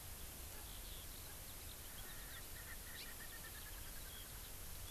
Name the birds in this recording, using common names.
Eurasian Skylark, Erckel's Francolin